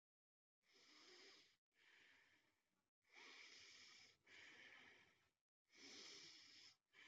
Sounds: Sigh